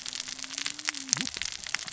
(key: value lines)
label: biophony, cascading saw
recorder: SoundTrap 600 or HydroMoth